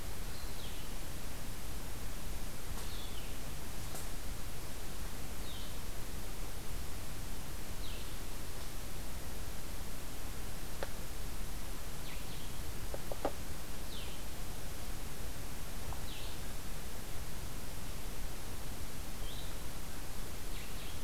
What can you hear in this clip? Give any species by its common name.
Blue-headed Vireo